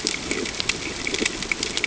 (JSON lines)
{"label": "ambient", "recorder": "HydroMoth"}